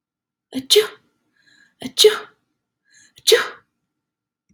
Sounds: Sneeze